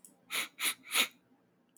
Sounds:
Sniff